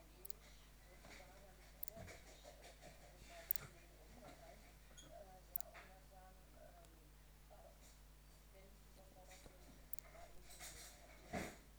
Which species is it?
Leptophyes laticauda